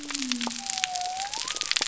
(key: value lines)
label: biophony
recorder: SoundTrap 300